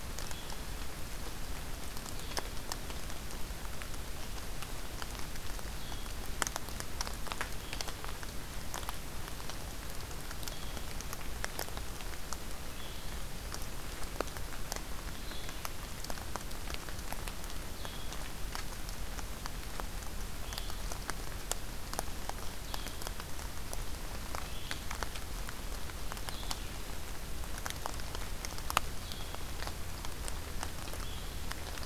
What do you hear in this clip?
Blue-headed Vireo